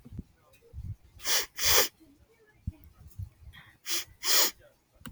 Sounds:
Sniff